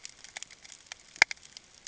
{"label": "ambient", "recorder": "HydroMoth"}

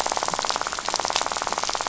{"label": "biophony, rattle", "recorder": "SoundTrap 500"}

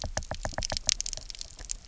{"label": "biophony, knock", "recorder": "SoundTrap 300"}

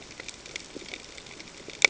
{"label": "ambient", "recorder": "HydroMoth"}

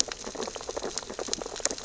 {"label": "biophony, sea urchins (Echinidae)", "recorder": "SoundTrap 600 or HydroMoth"}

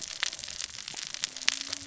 {"label": "biophony, cascading saw", "recorder": "SoundTrap 600 or HydroMoth"}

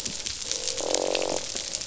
{"label": "biophony, croak", "recorder": "SoundTrap 500"}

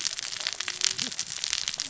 {"label": "biophony, cascading saw", "recorder": "SoundTrap 600 or HydroMoth"}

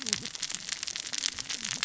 {"label": "biophony, cascading saw", "recorder": "SoundTrap 600 or HydroMoth"}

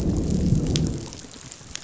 {"label": "biophony, growl", "recorder": "SoundTrap 500"}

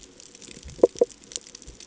{"label": "ambient", "recorder": "HydroMoth"}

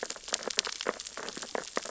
{"label": "biophony, sea urchins (Echinidae)", "recorder": "SoundTrap 600 or HydroMoth"}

